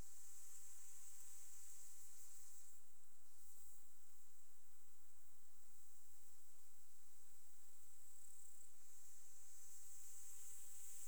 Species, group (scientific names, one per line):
Tettigonia cantans
Orthoptera